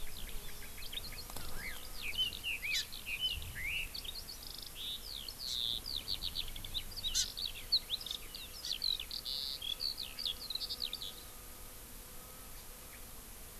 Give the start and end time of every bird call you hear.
[0.00, 11.34] Eurasian Skylark (Alauda arvensis)
[1.44, 3.94] Red-billed Leiothrix (Leiothrix lutea)
[2.74, 2.84] Hawaii Amakihi (Chlorodrepanis virens)
[5.44, 5.54] Hawaii Amakihi (Chlorodrepanis virens)
[7.14, 7.24] Hawaii Amakihi (Chlorodrepanis virens)
[8.04, 8.14] Hawaii Amakihi (Chlorodrepanis virens)
[8.64, 8.74] Chinese Hwamei (Garrulax canorus)

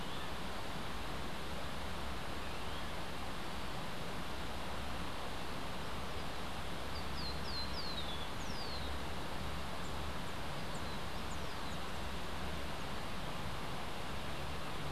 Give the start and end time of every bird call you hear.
[6.96, 9.06] Cabanis's Ground-Sparrow (Melozone cabanisi)

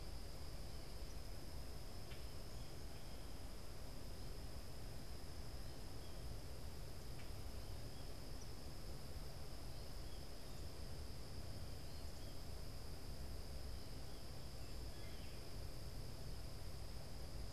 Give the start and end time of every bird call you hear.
[0.00, 7.42] Common Grackle (Quiscalus quiscula)
[14.62, 15.42] Blue Jay (Cyanocitta cristata)

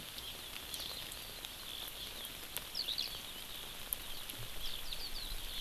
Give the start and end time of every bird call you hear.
[2.70, 3.20] Eurasian Skylark (Alauda arvensis)

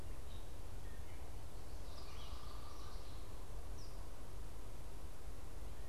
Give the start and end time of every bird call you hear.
[0.00, 4.20] Gray Catbird (Dumetella carolinensis)
[1.40, 3.50] Common Yellowthroat (Geothlypis trichas)

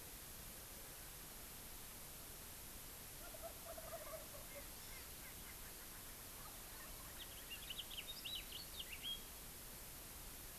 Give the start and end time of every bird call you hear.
[3.20, 4.70] Wild Turkey (Meleagris gallopavo)
[4.40, 6.20] Erckel's Francolin (Pternistis erckelii)
[4.70, 5.10] Hawaii Amakihi (Chlorodrepanis virens)
[7.10, 9.40] House Finch (Haemorhous mexicanus)

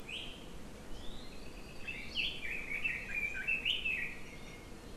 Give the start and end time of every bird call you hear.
[0.00, 0.30] Iiwi (Drepanis coccinea)
[1.30, 2.00] Apapane (Himatione sanguinea)
[2.40, 4.20] Red-billed Leiothrix (Leiothrix lutea)
[4.10, 4.80] Iiwi (Drepanis coccinea)

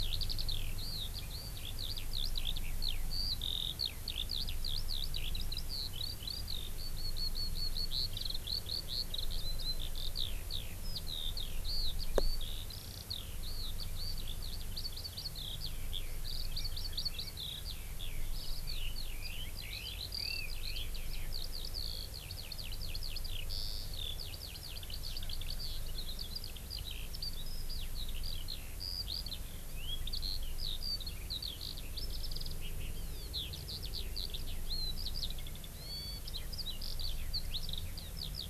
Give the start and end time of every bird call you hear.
[0.00, 38.50] Eurasian Skylark (Alauda arvensis)
[16.50, 17.30] Hawaii Amakihi (Chlorodrepanis virens)
[18.70, 20.90] Red-billed Leiothrix (Leiothrix lutea)

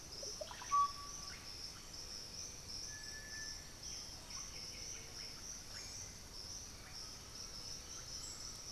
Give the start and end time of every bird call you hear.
[0.00, 8.71] Russet-backed Oropendola (Psarocolius angustifrons)
[3.85, 5.75] White-winged Becard (Pachyramphus polychopterus)
[6.65, 8.71] Undulated Tinamou (Crypturellus undulatus)
[6.95, 8.71] Black-billed Thrush (Turdus ignobilis)

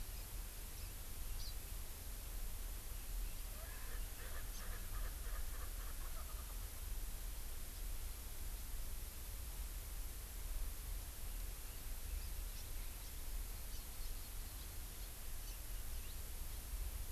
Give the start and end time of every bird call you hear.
[0.70, 0.90] House Finch (Haemorhous mexicanus)
[1.30, 1.60] Hawaii Amakihi (Chlorodrepanis virens)
[3.50, 6.70] Erckel's Francolin (Pternistis erckelii)
[4.50, 4.70] Hawaii Amakihi (Chlorodrepanis virens)
[12.50, 12.70] House Finch (Haemorhous mexicanus)
[13.00, 13.20] House Finch (Haemorhous mexicanus)
[13.70, 13.80] House Finch (Haemorhous mexicanus)
[15.40, 15.60] House Finch (Haemorhous mexicanus)

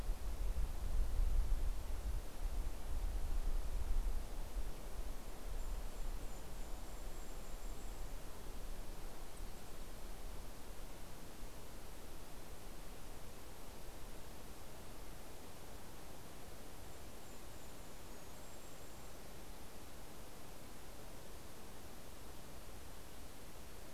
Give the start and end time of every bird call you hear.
[4.66, 8.26] Golden-crowned Kinglet (Regulus satrapa)
[16.36, 19.86] Golden-crowned Kinglet (Regulus satrapa)

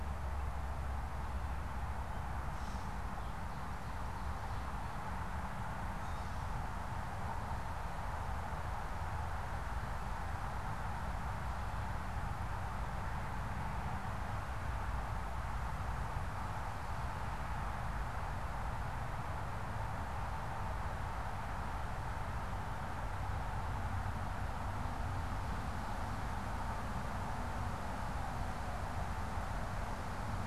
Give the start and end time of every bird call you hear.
[2.40, 3.10] Gray Catbird (Dumetella carolinensis)
[5.80, 6.50] Gray Catbird (Dumetella carolinensis)

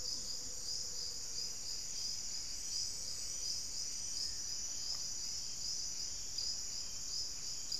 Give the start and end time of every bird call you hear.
[0.00, 1.76] unidentified bird
[1.76, 5.96] Buff-breasted Wren (Cantorchilus leucotis)

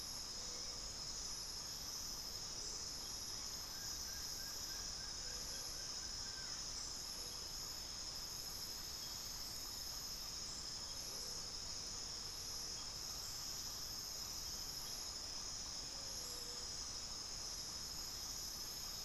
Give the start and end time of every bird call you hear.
[2.41, 3.01] Amazonian Motmot (Momotus momota)
[3.61, 6.71] Plain-winged Antshrike (Thamnophilus schistaceus)
[10.91, 15.71] Amazonian Motmot (Momotus momota)

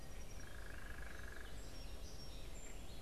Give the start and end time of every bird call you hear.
[0.00, 0.80] Song Sparrow (Melospiza melodia)
[0.20, 1.60] unidentified bird
[1.40, 3.02] Song Sparrow (Melospiza melodia)
[1.80, 3.02] Gray Catbird (Dumetella carolinensis)

